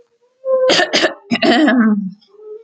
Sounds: Throat clearing